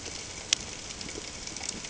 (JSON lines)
{"label": "ambient", "recorder": "HydroMoth"}